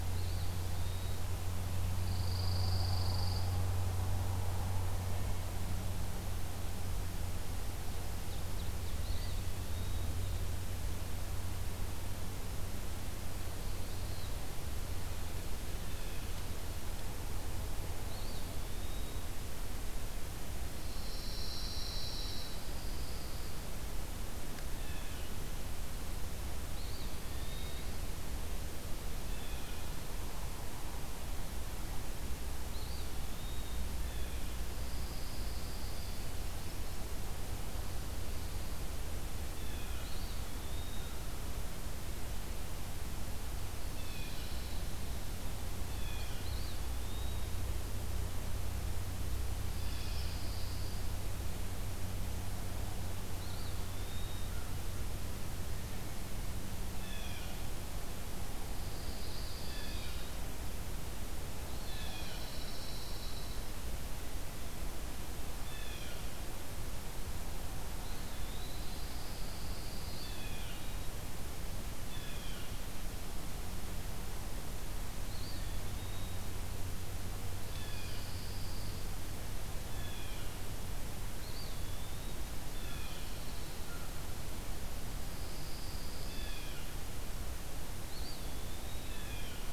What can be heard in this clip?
Eastern Wood-Pewee, Pine Warbler, Ovenbird, Blue Jay